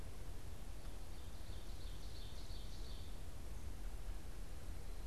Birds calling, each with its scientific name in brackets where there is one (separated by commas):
Ovenbird (Seiurus aurocapilla), Wood Thrush (Hylocichla mustelina)